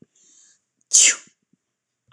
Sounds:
Sneeze